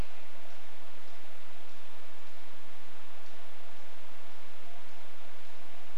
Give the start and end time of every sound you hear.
[0, 6] unidentified bird chip note

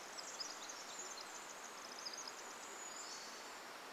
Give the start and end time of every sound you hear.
[0, 2] Brown Creeper call
[0, 4] Pacific Wren song
[2, 4] Pacific-slope Flycatcher song

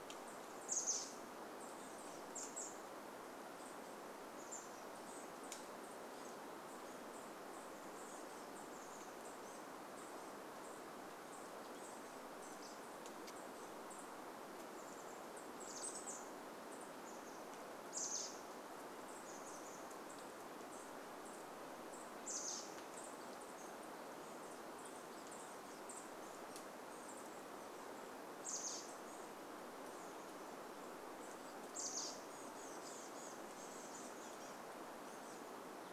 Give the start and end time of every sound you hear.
[0, 36] Chestnut-backed Chickadee call
[24, 26] unidentified sound

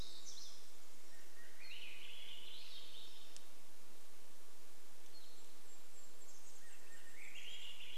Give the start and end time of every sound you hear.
[0, 2] warbler song
[0, 4] Swainson's Thrush song
[4, 6] unidentified sound
[4, 8] Golden-crowned Kinglet song
[6, 8] Swainson's Thrush song

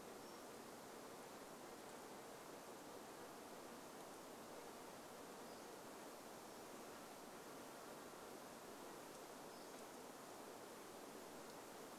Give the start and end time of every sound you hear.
[0, 2] Pacific-slope Flycatcher call
[0, 10] insect buzz
[4, 6] Pacific-slope Flycatcher call
[8, 10] Pacific-slope Flycatcher call

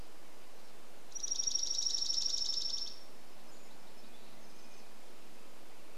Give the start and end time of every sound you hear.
[0, 4] Dark-eyed Junco song
[2, 6] warbler song
[4, 6] Red-breasted Nuthatch song

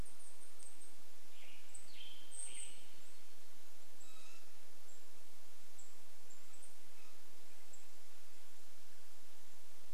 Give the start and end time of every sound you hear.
[0, 2] Band-tailed Pigeon call
[0, 4] Western Tanager song
[0, 8] Golden-crowned Kinglet call
[2, 4] warbler song
[6, 10] Red-breasted Nuthatch song

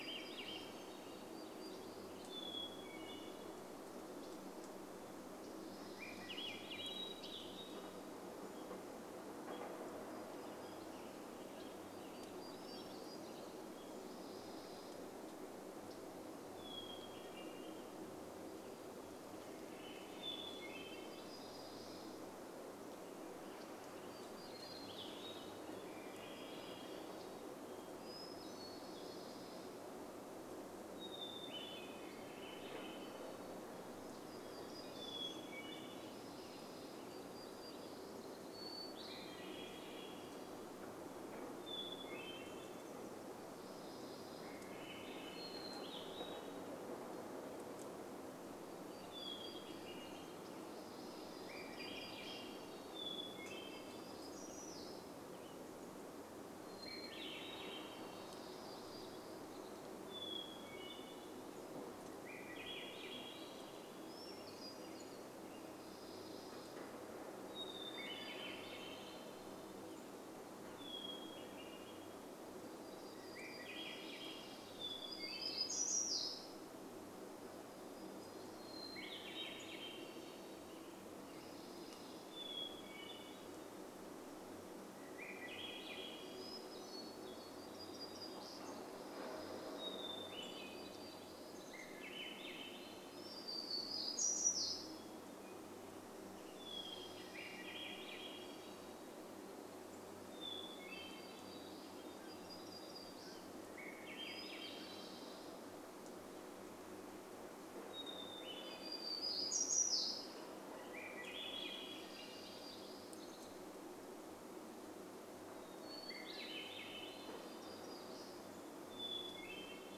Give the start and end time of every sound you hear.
[0, 2] Swainson's Thrush song
[0, 2] warbler song
[0, 120] vehicle engine
[2, 4] Hermit Thrush song
[4, 6] unidentified bird chip note
[6, 8] Hermit Thrush song
[6, 8] Swainson's Thrush song
[8, 16] unidentified sound
[10, 14] warbler song
[16, 18] Hermit Thrush song
[18, 20] Swainson's Thrush song
[18, 26] warbler song
[20, 22] Hermit Thrush song
[24, 26] Hermit Thrush song
[24, 28] Swainson's Thrush song
[28, 32] Hermit Thrush song
[32, 34] Swainson's Thrush song
[34, 36] Hermit Thrush song
[34, 36] warbler song
[36, 38] Western Tanager song
[36, 38] unidentified sound
[38, 42] Swainson's Thrush song
[38, 54] Hermit Thrush song
[42, 46] unidentified sound
[44, 46] Swainson's Thrush song
[48, 54] warbler song
[50, 54] Swainson's Thrush song
[54, 56] unidentified sound
[56, 58] Hermit Thrush song
[56, 58] Swainson's Thrush song
[58, 60] warbler song
[60, 62] Hermit Thrush song
[62, 64] Swainson's Thrush song
[64, 66] Western Tanager song
[64, 68] Hermit Thrush song
[66, 70] warbler song
[68, 70] Swainson's Thrush song
[70, 72] Hermit Thrush song
[72, 76] Swainson's Thrush song
[72, 78] warbler song
[74, 76] Hermit Thrush song
[78, 80] Hermit Thrush song
[78, 80] Swainson's Thrush song
[80, 84] Western Tanager song
[82, 84] Hermit Thrush song
[84, 88] Swainson's Thrush song
[86, 96] warbler song
[88, 92] Hermit Thrush song
[90, 94] Swainson's Thrush song
[94, 98] Hermit Thrush song
[96, 100] Swainson's Thrush song
[100, 102] Hermit Thrush song
[100, 102] warbler song
[102, 104] Mountain Quail call
[102, 106] Swainson's Thrush song
[104, 112] Hermit Thrush song
[108, 114] warbler song
[110, 114] Swainson's Thrush song
[114, 120] Hermit Thrush song
[116, 120] Swainson's Thrush song
[116, 120] warbler song

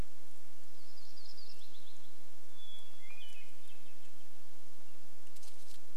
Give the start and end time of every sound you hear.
[0, 2] Yellow-rumped Warbler song
[2, 4] Hermit Thrush song

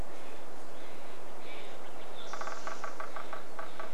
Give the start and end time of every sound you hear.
[0, 4] Steller's Jay call
[2, 4] Mountain Quail call
[2, 4] Spotted Towhee song
[2, 4] woodpecker drumming

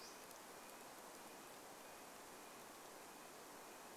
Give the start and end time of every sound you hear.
[0, 4] Red-breasted Nuthatch song

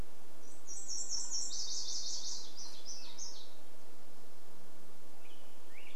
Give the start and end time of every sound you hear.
[0, 4] Nashville Warbler song
[0, 4] woodpecker drumming
[2, 4] warbler song
[4, 6] Black-headed Grosbeak song

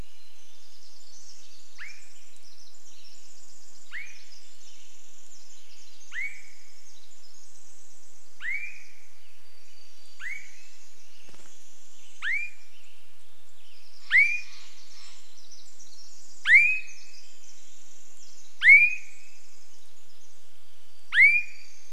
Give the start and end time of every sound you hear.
[0, 22] Pacific Wren song
[0, 22] Swainson's Thrush call
[2, 6] Western Tanager song
[8, 10] Western Tanager song
[8, 12] warbler song
[10, 12] bird wingbeats
[12, 14] Western Tanager song
[14, 16] Steller's Jay call
[16, 18] Swainson's Thrush song
[20, 22] warbler song

